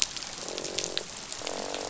{"label": "biophony, croak", "recorder": "SoundTrap 500"}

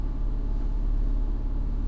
{"label": "anthrophony, boat engine", "recorder": "SoundTrap 300"}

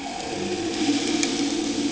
{"label": "anthrophony, boat engine", "recorder": "HydroMoth"}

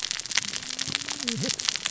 {"label": "biophony, cascading saw", "recorder": "SoundTrap 600 or HydroMoth"}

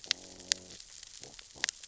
{"label": "biophony, growl", "recorder": "SoundTrap 600 or HydroMoth"}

